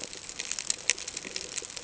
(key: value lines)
label: ambient
recorder: HydroMoth